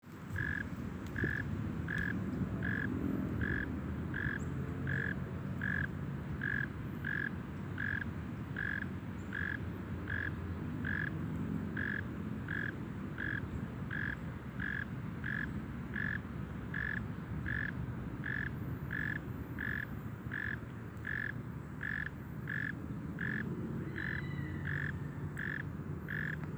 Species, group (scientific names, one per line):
Neocurtilla hexadactyla
Orthoptera